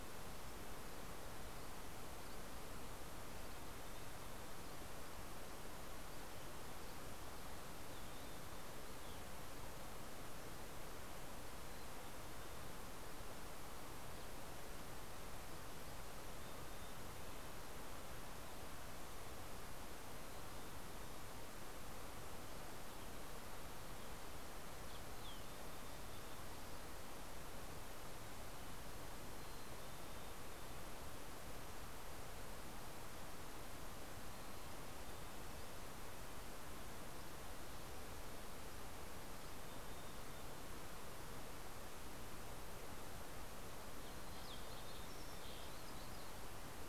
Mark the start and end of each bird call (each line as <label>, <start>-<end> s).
Mountain Chickadee (Poecile gambeli), 2.9-4.9 s
Mountain Chickadee (Poecile gambeli), 6.8-8.7 s
Mountain Chickadee (Poecile gambeli), 11.0-12.9 s
Mountain Chickadee (Poecile gambeli), 15.1-17.5 s
Mountain Chickadee (Poecile gambeli), 19.4-21.7 s
Mountain Chickadee (Poecile gambeli), 24.6-26.5 s
Mountain Chickadee (Poecile gambeli), 28.9-31.1 s
Mountain Chickadee (Poecile gambeli), 34.2-35.8 s
Mountain Chickadee (Poecile gambeli), 39.1-40.6 s
Fox Sparrow (Passerella iliaca), 43.3-46.8 s
Mountain Chickadee (Poecile gambeli), 43.9-45.9 s